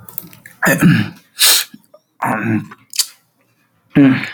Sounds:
Throat clearing